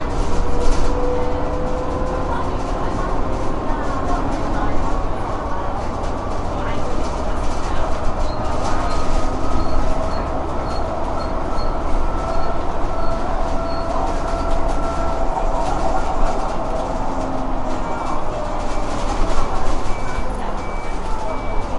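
A bus is driving with a loud motor noise. 0:00.0 - 0:21.8
People talking inside a bus. 0:00.6 - 0:09.9
A repetitive squeaky noise on a bus. 0:08.2 - 0:14.0
An electronic beep repeats with a high tone. 0:18.0 - 0:21.8

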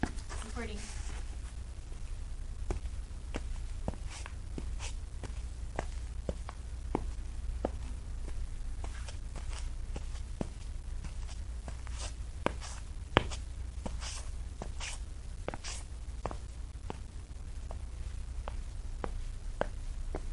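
Footsteps on a wooden surface, each step creating a clear tapping sound as a person walks steadily. 0:00.0 - 0:20.3

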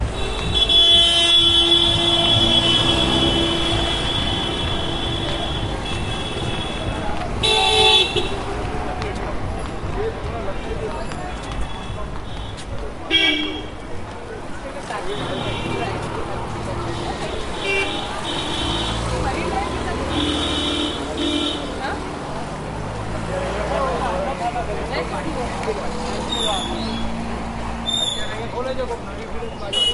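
People murmuring in a busy street. 0:00.0 - 0:29.9
A vehicle passes by on a busy street while constantly honking. 0:00.0 - 0:07.4
A vehicle horn honks continuously. 0:07.4 - 0:08.3
A vehicle honks shortly. 0:13.0 - 0:13.6
A vehicle honks shortly in the distance. 0:17.6 - 0:18.0
A heavy vehicle accelerates. 0:18.4 - 0:21.2
A vehicle honks repeatedly with quieter honks in between. 0:18.5 - 0:21.7
A vehicle horn sounds twice in the distance. 0:26.2 - 0:28.3
A vehicle honks. 0:29.7 - 0:29.9

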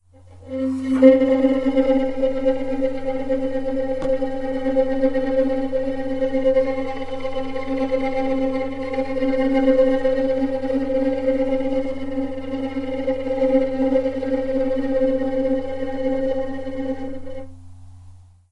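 A fast-paced tremolo is played on a violin, creating a scraped sound. 0:00.3 - 0:18.0

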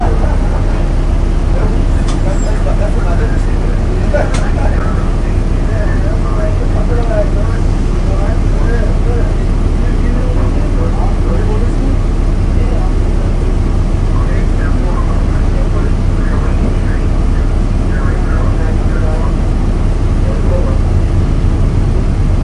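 An engine is running. 0:00.0 - 0:22.4
People are talking in the background. 0:00.0 - 0:22.4
A dog barks in the background. 0:01.5 - 0:01.9

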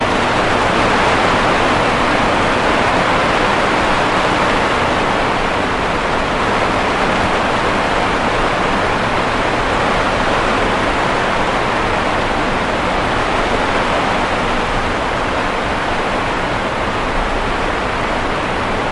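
Rain falls steadily on a surface. 0:00.0 - 0:18.9

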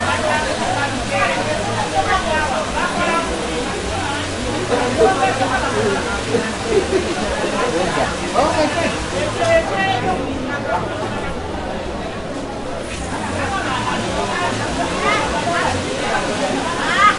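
Crowd noise in an outdoor marketplace. 0:00.0 - 0:17.2

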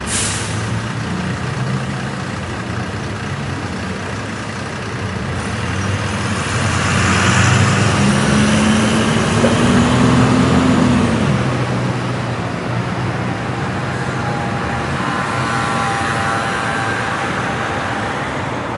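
Vehicles driving with a continuous, loud engine sound that rises in the middle and at the end. 0:00.0 - 0:18.8

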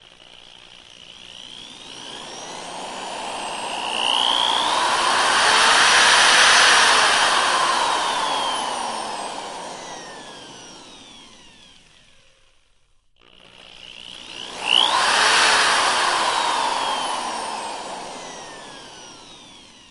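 A power drill buzzes indoors, gradually increasing its speed before slowing down. 0:00.0 - 0:19.9

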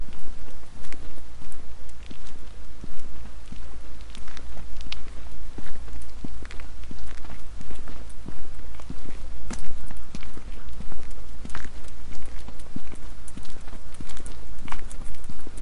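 Continuous footsteps. 0:00.0 - 0:15.6
Continuous footsteps of a dog in the background. 0:00.0 - 0:15.6
Continuous static noise. 0:00.0 - 0:15.6

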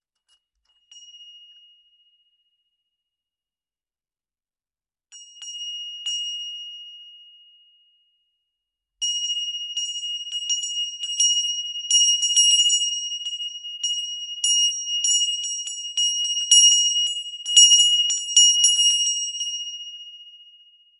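A single quiet, high-pitched bell chimes with a lingering echo. 0:00.7 - 0:02.2
Three quiet, high-pitched bell chimes with a lingering echo, separated by a brief pause before the last chime. 0:05.1 - 0:07.4
A high-pitched bell chimes repeatedly in an irregular pattern with fluctuating volume and a lingering echo. 0:09.0 - 0:21.0

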